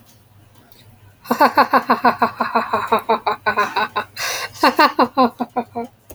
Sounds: Laughter